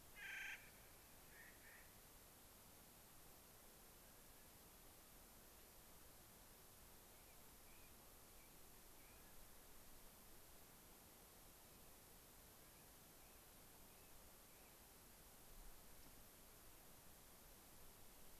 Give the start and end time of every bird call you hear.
0.2s-0.7s: Clark's Nutcracker (Nucifraga columbiana)
1.2s-2.0s: Clark's Nutcracker (Nucifraga columbiana)
7.1s-9.5s: American Robin (Turdus migratorius)
12.6s-14.9s: American Robin (Turdus migratorius)

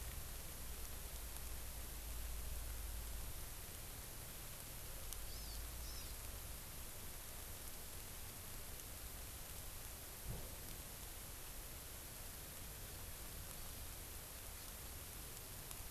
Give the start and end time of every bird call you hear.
5.3s-6.1s: Hawaii Amakihi (Chlorodrepanis virens)

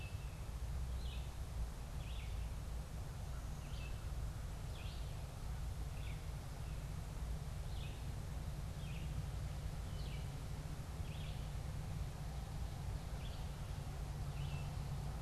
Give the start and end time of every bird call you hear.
0.0s-14.9s: Red-eyed Vireo (Vireo olivaceus)

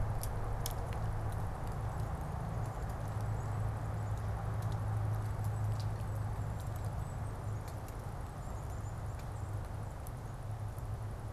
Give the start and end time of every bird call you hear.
0.0s-11.3s: Golden-crowned Kinglet (Regulus satrapa)

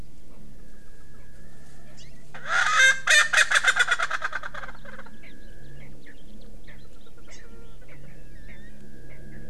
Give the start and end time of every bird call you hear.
1.9s-2.1s: Hawaii Amakihi (Chlorodrepanis virens)
2.3s-5.3s: Erckel's Francolin (Pternistis erckelii)
5.8s-6.1s: Erckel's Francolin (Pternistis erckelii)
6.6s-6.8s: Erckel's Francolin (Pternistis erckelii)
7.3s-7.5s: Hawaii Amakihi (Chlorodrepanis virens)
7.8s-8.0s: Erckel's Francolin (Pternistis erckelii)
8.5s-8.6s: Erckel's Francolin (Pternistis erckelii)
9.1s-9.4s: Erckel's Francolin (Pternistis erckelii)

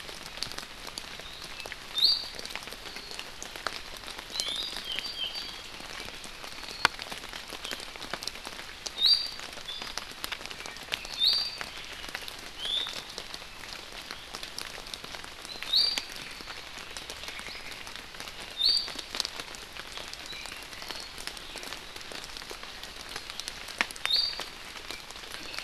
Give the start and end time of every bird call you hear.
2.0s-2.4s: Iiwi (Drepanis coccinea)
4.3s-4.7s: Iiwi (Drepanis coccinea)
4.6s-5.7s: Apapane (Himatione sanguinea)
9.0s-9.4s: Iiwi (Drepanis coccinea)
10.6s-12.1s: Apapane (Himatione sanguinea)
11.1s-11.7s: Iiwi (Drepanis coccinea)
12.6s-12.9s: Iiwi (Drepanis coccinea)
15.5s-16.1s: Iiwi (Drepanis coccinea)
18.6s-18.9s: Iiwi (Drepanis coccinea)
20.3s-21.2s: Apapane (Himatione sanguinea)

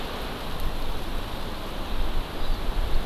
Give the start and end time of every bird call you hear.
2.3s-2.6s: Hawaii Amakihi (Chlorodrepanis virens)

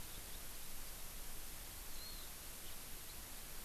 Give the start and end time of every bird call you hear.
2.0s-2.3s: Warbling White-eye (Zosterops japonicus)
2.6s-2.8s: House Finch (Haemorhous mexicanus)

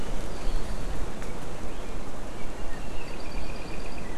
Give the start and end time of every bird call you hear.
2.9s-4.1s: Apapane (Himatione sanguinea)

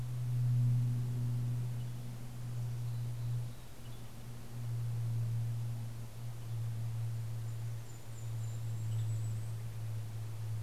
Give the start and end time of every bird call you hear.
0.0s-4.4s: Western Tanager (Piranga ludoviciana)
2.3s-4.3s: Mountain Chickadee (Poecile gambeli)
7.2s-10.3s: Golden-crowned Kinglet (Regulus satrapa)
8.1s-10.6s: Western Tanager (Piranga ludoviciana)

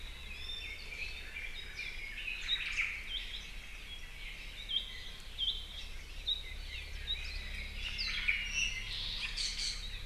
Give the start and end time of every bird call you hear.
0.2s-2.4s: Red-billed Leiothrix (Leiothrix lutea)
0.3s-0.9s: Iiwi (Drepanis coccinea)
1.6s-2.0s: Apapane (Himatione sanguinea)
2.3s-3.0s: Omao (Myadestes obscurus)
6.6s-6.9s: Apapane (Himatione sanguinea)
7.9s-8.2s: Apapane (Himatione sanguinea)
7.9s-8.5s: Omao (Myadestes obscurus)
8.4s-8.9s: Iiwi (Drepanis coccinea)
8.8s-9.3s: Apapane (Himatione sanguinea)
9.3s-10.0s: Iiwi (Drepanis coccinea)

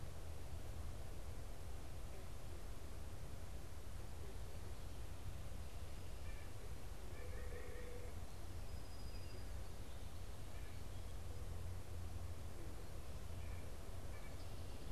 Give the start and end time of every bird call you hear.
6.0s-8.2s: White-breasted Nuthatch (Sitta carolinensis)
8.4s-10.1s: Song Sparrow (Melospiza melodia)
10.4s-14.5s: White-breasted Nuthatch (Sitta carolinensis)

